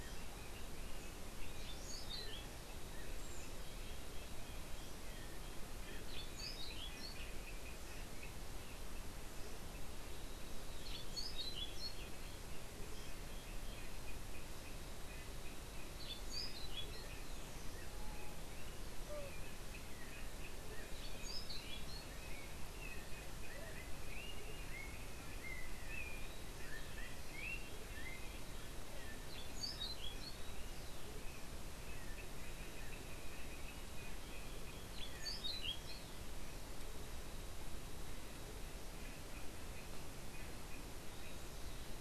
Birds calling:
Orange-billed Nightingale-Thrush (Catharus aurantiirostris)
Yellow-backed Oriole (Icterus chrysater)
unidentified bird

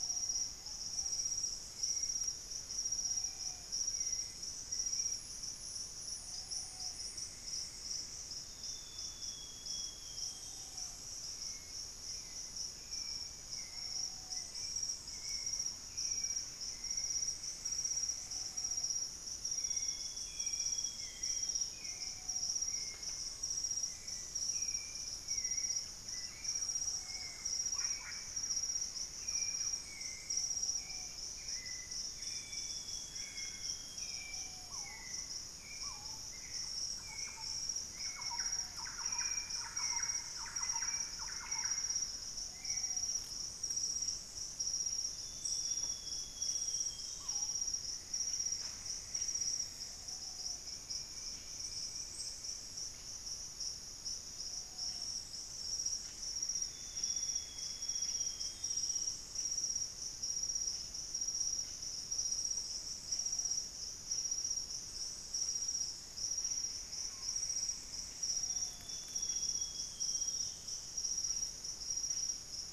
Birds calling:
Hauxwell's Thrush (Turdus hauxwelli)
Purple-throated Fruitcrow (Querula purpurata)
Ruddy Pigeon (Patagioenas subvinacea)
Amazonian Grosbeak (Cyanoloxia rothschildii)
Screaming Piha (Lipaugus vociferans)
Blue-headed Parrot (Pionus menstruus)
Fasciated Antshrike (Cymbilaimus lineatus)
Solitary Black Cacique (Cacicus solitarius)
unidentified bird
Thrush-like Wren (Campylorhynchus turdinus)
Golden-green Woodpecker (Piculus chrysochloros)
Plumbeous Antbird (Myrmelastes hyperythrus)

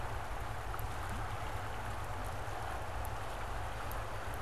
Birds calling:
Blue Jay (Cyanocitta cristata)

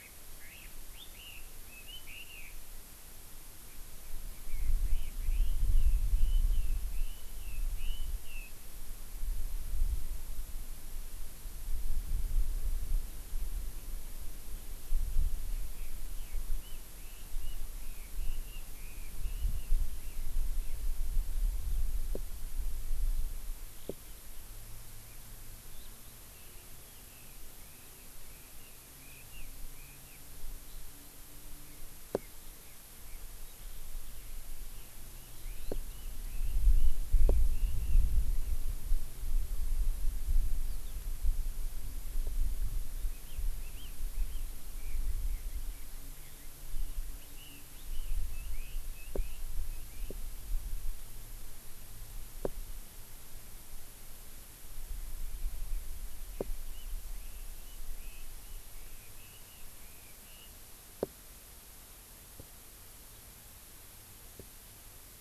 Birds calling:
Chinese Hwamei (Garrulax canorus)

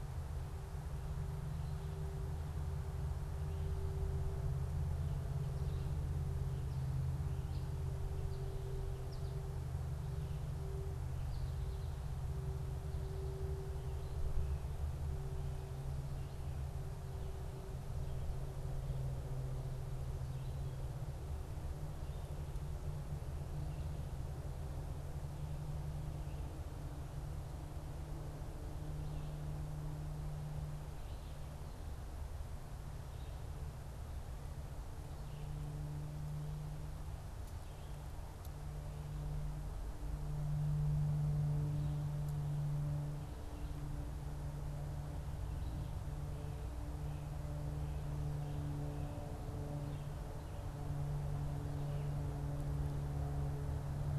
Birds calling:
American Goldfinch (Spinus tristis)

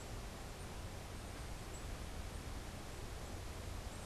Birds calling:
Black-capped Chickadee (Poecile atricapillus)

